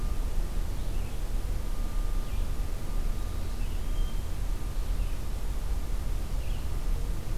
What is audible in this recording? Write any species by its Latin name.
Vireo olivaceus